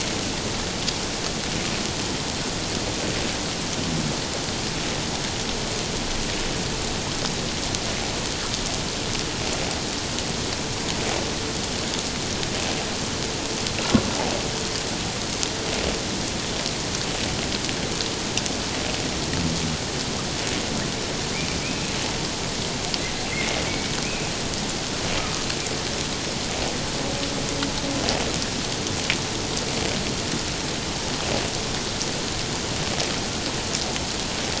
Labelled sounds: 21.6	21.9	humpback whale, 2.2 to 2.6 kHz
23.3	23.6	humpback whale, 2.0 to 2.2 kHz
24.0	24.3	humpback whale, 2.3 to 2.6 kHz

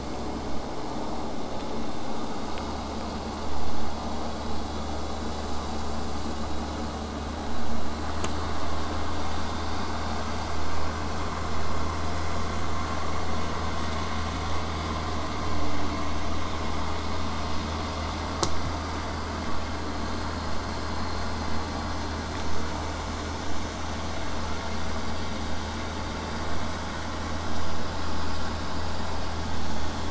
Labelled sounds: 15.5	20.5	vessel noise, 0 to 8.0 kHz

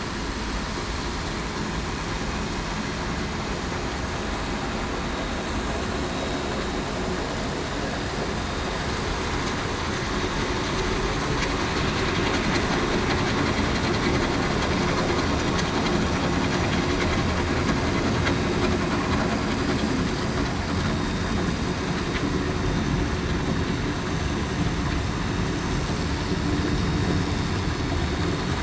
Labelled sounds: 8.4	8.7	vessel noise, 3.70 to 3.73 kHz
20.8	21.2	vessel noise, 3.68 to 3.73 kHz

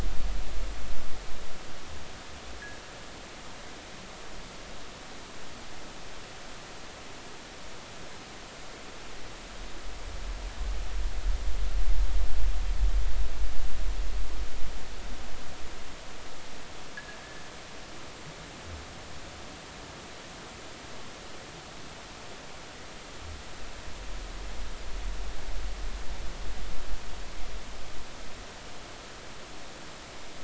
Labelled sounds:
17.0	17.2	fishing gear, 1.6 to 1.8 kHz

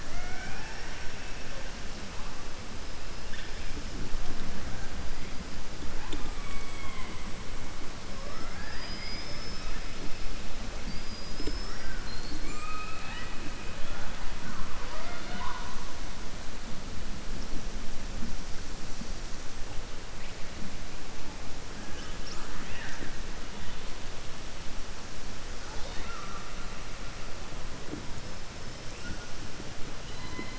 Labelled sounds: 0.0	1.5	killer whale, southern resident, 0.65 to 3.1 kHz
8.1	9.7	killer whale, southern resident, 0.59 to 5.8 kHz
25.6	26.5	killer whale, southern resident, 0.47 to 5.1 kHz

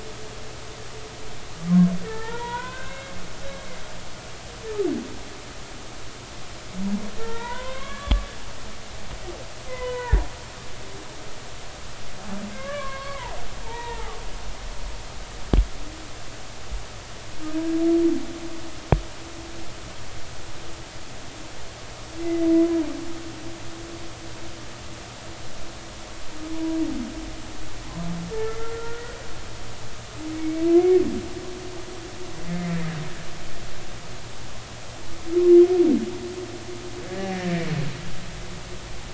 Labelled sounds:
2.0	3.1	humpback whale, 0.83 to 3.8 kHz
3.8	4.1	humpback whale, 2.6 to 2.8 kHz
7.2	8.3	humpback whale, 0.86 to 4.0 kHz
9.7	10.3	humpback whale, 0.86 to 2.1 kHz
12.5	13.4	humpback whale, 0.80 to 2.4 kHz
13.6	14.1	humpback whale, 0.80 to 2.0 kHz
22.2	22.5	humpback whale, 2.0 to 2.1 kHz
28.3	29.0	humpback whale, 1.3 to 1.8 kHz
30.4	31.0	humpback whale, 2.0 to 2.3 kHz
32.5	32.7	humpback whale, 2.0 to 2.2 kHz
37.1	37.6	humpback whale, 1.6 to 2.0 kHz

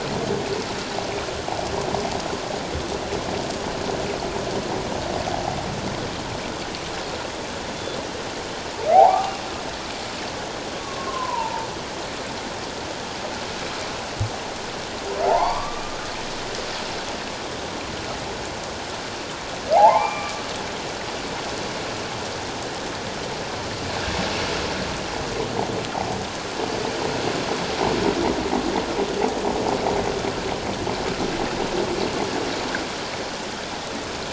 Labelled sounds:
8.9	9.3	humpback whale, 0.78 to 1.3 kHz
10.8	11.7	humpback whale, 0.84 to 1.2 kHz
15.2	15.8	humpback whale, 0.78 to 4.8 kHz
19.7	20.4	humpback whale, 0.78 to 2.4 kHz

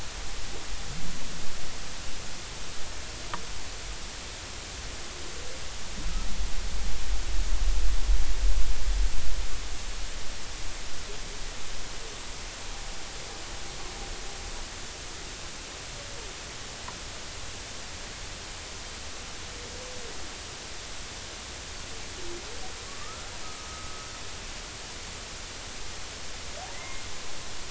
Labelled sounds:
23.0	23.3	humpback whale, 1.1 to 1.4 kHz
23.6	23.9	humpback whale, 1.2 to 1.3 kHz

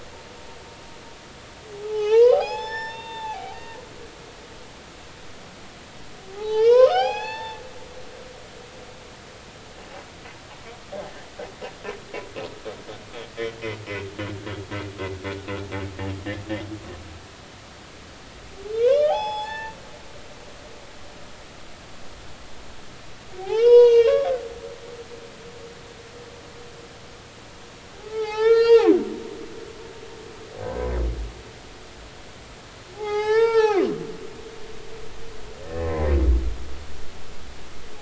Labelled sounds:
1.7	3.6	humpback whale, 0.80 to 5.5 kHz
6.3	7.6	humpback whale, 0.80 to 6.2 kHz
18.8	19.8	humpback whale, 0.80 to 5.3 kHz
23.4	24.3	humpback whale, 0.80 to 6.8 kHz
27.9	28.9	humpback whale, 0.80 to 6.6 kHz
30.6	30.9	humpback whale, 1.5 to 1.6 kHz
32.9	34.0	humpback whale, 0.80 to 5.5 kHz
35.6	37.1	humpback whale, 0.96 to 2.1 kHz

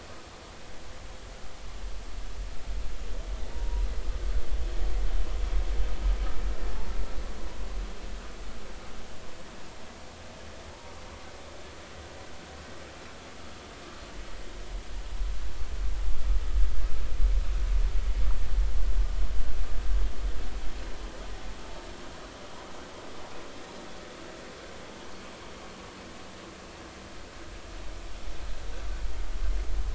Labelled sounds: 3.5	3.9	humpback whale, 0.90 to 1.0 kHz
6.7	6.9	humpback whale, 0.83 to 0.96 kHz
10.7	10.9	humpback whale, 0.83 to 0.99 kHz

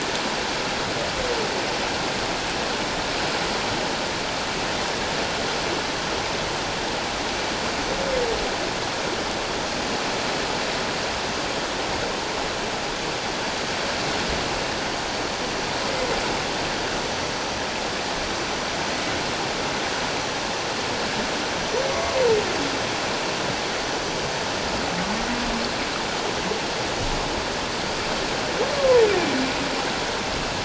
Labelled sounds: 21.9	22.2	humpback whale, 1.0 to 1.2 kHz
28.8	29.0	humpback whale, 0.91 to 1.2 kHz

